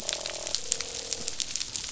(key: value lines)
label: biophony, croak
recorder: SoundTrap 500